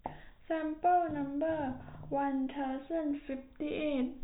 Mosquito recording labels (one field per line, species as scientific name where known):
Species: no mosquito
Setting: cup